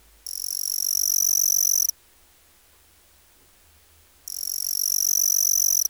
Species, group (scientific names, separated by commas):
Pteronemobius heydenii, Orthoptera